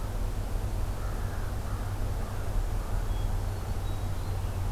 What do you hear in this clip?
American Crow, Hermit Thrush